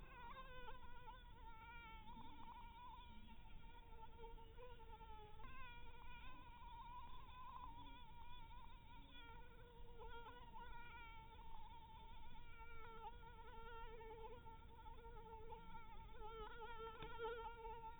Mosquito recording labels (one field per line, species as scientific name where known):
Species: Anopheles dirus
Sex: female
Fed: blood-fed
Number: one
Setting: cup